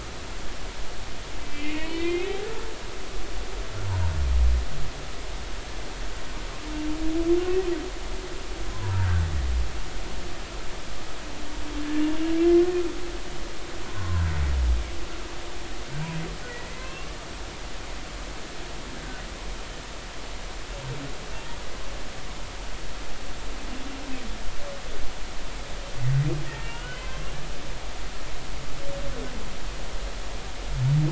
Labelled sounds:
1.4	2.3	humpback whale, 2.0 to 3.3 kHz
8.7	9.2	humpback whale, 0.90 to 1.7 kHz
13.9	14.2	humpback whale, 0.93 to 1.1 kHz
16.8	17.2	humpback whale, 0.99 to 1.2 kHz
26.5	27.1	humpback whale, 1.3 to 3.2 kHz

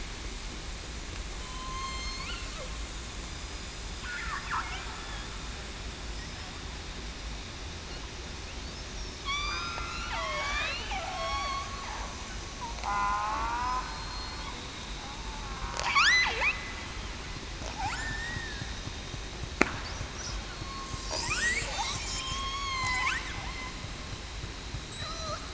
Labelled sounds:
0.7	1.1	killer whale, southern resident, 6.9 to 7.0 kHz
1.4	2.0	killer whale, southern resident, 0.98 to 1.1 kHz
3.3	3.6	killer whale, southern resident, 4.9 to 5.0 kHz
9.2	9.8	killer whale, southern resident, 1.1 to 8.0 kHz
10.1	10.7	killer whale, southern resident, 0.89 to 1.3 kHz
11.1	11.5	killer whale, southern resident, 5.4 to 5.7 kHz
11.8	12.2	killer whale, southern resident, 0.87 to 1.1 kHz
12.8	13.8	killer whale, southern resident, 0.73 to 2.8 kHz
15.9	16.3	killer whale, southern resident, 1.1 to 2.1 kHz
17.9	18.7	killer whale, southern resident, 1.6 to 1.9 kHz
20.4	20.8	killer whale, southern resident, 4.3 to 4.4 kHz
22.0	23.1	killer whale, southern resident, 2.0 to 6.7 kHz
24.9	25.4	killer whale, southern resident, 0.56 to 8.0 kHz

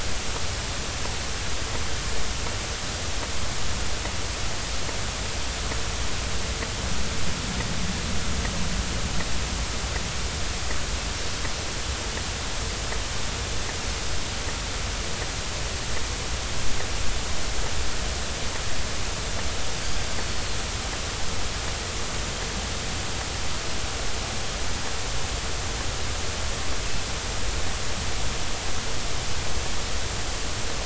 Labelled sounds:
20.3	20.6	Pacific white-sided dolphin, 4.0 to 4.4 kHz

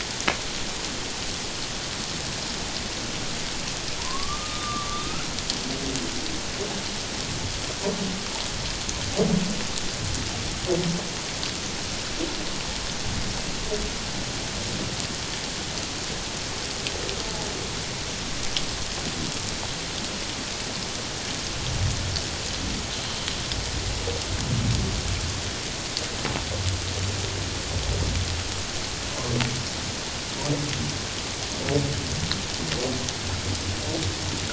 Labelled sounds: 4.0	5.0	humpback whale, 0.91 to 1.3 kHz

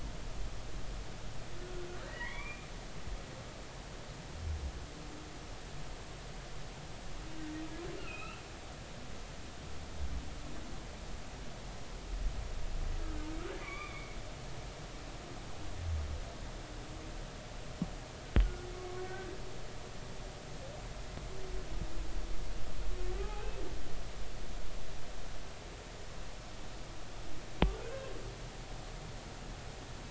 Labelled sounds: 2.1	2.7	humpback whale, 0.90 to 2.5 kHz
7.9	8.4	humpback whale, 1.2 to 3.0 kHz
13.6	14.2	humpback whale, 1.1 to 3.6 kHz
18.4	18.7	humpback whale, 1.3 to 1.5 kHz
23.2	23.6	humpback whale, 0.80 to 2.7 kHz

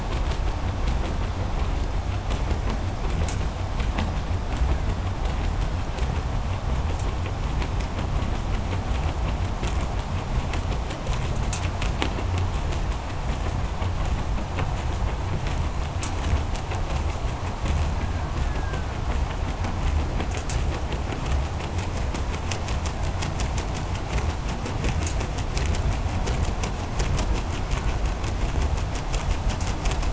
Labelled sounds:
4.6	6.3	killer whale, Bigg's (transient), 1.2 to 2.5 kHz
13.4	14.0	killer whale, 1.3 to 2.0 kHz
17.5	19.4	killer whale, Bigg's (transient), 1.2 to 2.3 kHz
22.7	23.4	killer whale, Bigg's (transient), 1.2 to 2.3 kHz
27.6	28.4	killer whale, 1.3 to 1.8 kHz

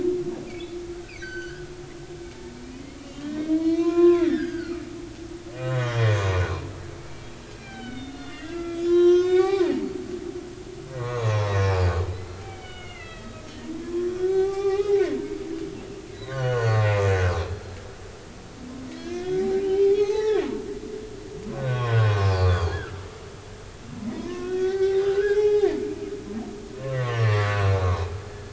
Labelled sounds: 0.0	1.7	humpback whale, 0.80 to 6.5 kHz
2.0	4.8	humpback whale, 0.90 to 5.2 kHz
5.6	6.1	humpback whale, 3.0 to 3.8 kHz
7.6	9.7	humpback whale, 0.80 to 6.3 kHz
11.0	13.4	humpback whale, 0.80 to 6.6 kHz
13.8	15.0	humpback whale, 0.80 to 5.2 kHz
16.1	16.8	humpback whale, 0.96 to 6.7 kHz
17.5	17.8	humpback whale, 1.6 to 1.7 kHz
18.9	20.4	humpback whale, 0.80 to 4.6 kHz
21.5	22.1	humpback whale, 0.99 to 3.9 kHz
22.4	23.0	humpback whale, 1.1 to 3.6 kHz
24.1	25.7	humpback whale, 0.80 to 3.8 kHz
26.0	28.1	humpback whale, 0.86 to 5.7 kHz

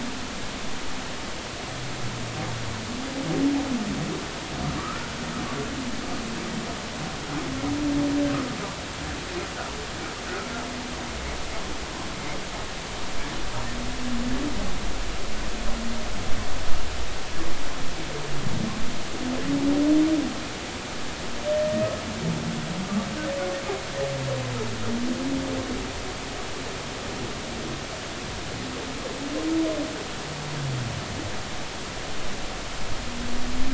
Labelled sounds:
4.8	5.1	humpback whale, 1.1 to 1.5 kHz

